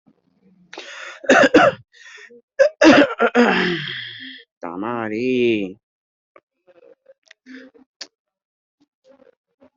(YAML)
expert_labels:
- quality: good
  cough_type: wet
  dyspnea: false
  wheezing: false
  stridor: false
  choking: false
  congestion: false
  nothing: true
  diagnosis: upper respiratory tract infection
  severity: mild
gender: female
respiratory_condition: false
fever_muscle_pain: false
status: healthy